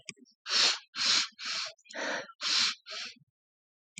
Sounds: Sniff